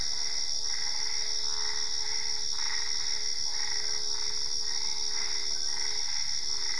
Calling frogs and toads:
Boana albopunctata (Hylidae), Boana lundii (Hylidae)
10:30pm

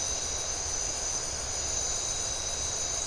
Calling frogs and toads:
none
~1am

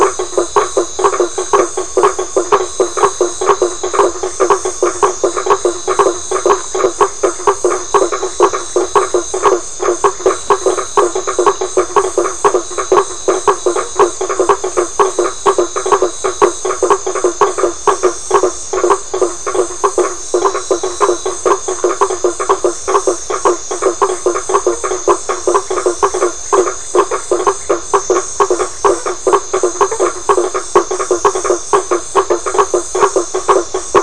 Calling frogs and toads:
Boana faber (Hylidae)
~10pm

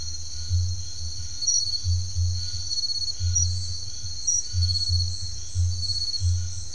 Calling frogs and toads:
Scinax alter (Hylidae)
10pm

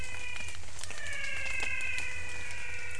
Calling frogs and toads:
Physalaemus albonotatus (Leptodactylidae)
~6pm

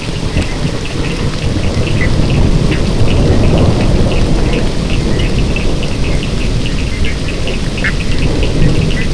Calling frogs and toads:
Sphaenorhynchus surdus (Hylidae), Boana bischoffi (Hylidae)
4am

